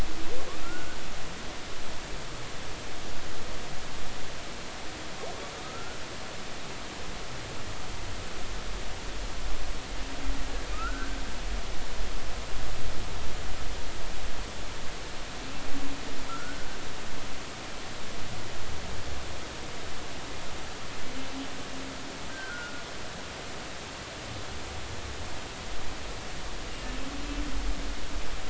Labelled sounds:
0.6	1.0	humpback whale, 1.3 to 1.6 kHz
5.6	6.0	humpback whale, 1.2 to 1.5 kHz
10.7	11.2	humpback whale, 1.2 to 1.6 kHz
16.3	16.7	humpback whale, 1.3 to 1.6 kHz
22.3	22.8	humpback whale, 1.2 to 1.6 kHz

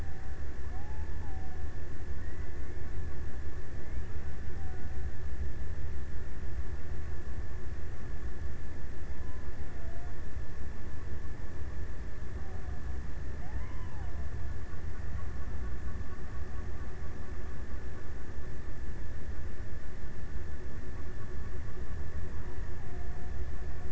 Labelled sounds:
0.0	2.0	killer whale, Bigg's (transient), 0.49 to 1.2 kHz
3.7	5.7	killer whale, Bigg's (transient), 0.52 to 1.1 kHz
8.8	10.6	killer whale, Bigg's (transient), 0.49 to 1.3 kHz
12.1	15.3	killer whale, Bigg's (transient), 0.60 to 1.4 kHz

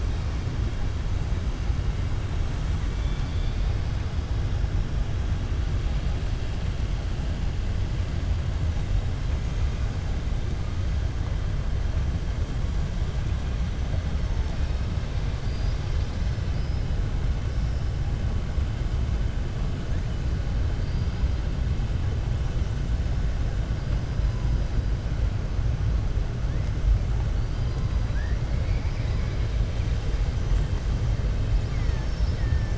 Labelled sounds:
2.9	3.7	killer whale, southern resident, 3.2 to 4.7 kHz
31.5	32.4	killer whale, southern resident, 4.5 to 6.7 kHz

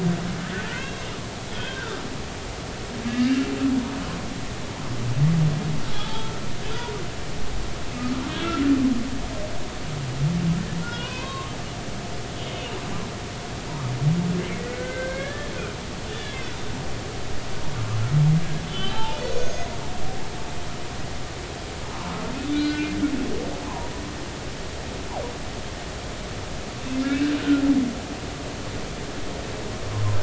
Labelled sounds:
0.7	1.0	humpback whale, 1.4 to 3.3 kHz
1.5	2.0	humpback whale, 1.2 to 3.4 kHz
3.1	3.4	humpback whale, 1.6 to 2.9 kHz
6.1	6.4	humpback whale, 0.83 to 1.4 kHz
10.8	11.5	humpback whale, 0.93 to 3.3 kHz
14.6	15.5	humpback whale, 1.1 to 2.3 kHz
16.1	16.4	humpback whale, 1.6 to 3.6 kHz
18.6	19.7	humpback whale, 0.80 to 6.5 kHz
22.5	22.9	humpback whale, 1.4 to 3.9 kHz
23.6	23.9	humpback whale, 0.83 to 1.1 kHz
27.4	27.6	humpback whale, 1.3 to 1.6 kHz

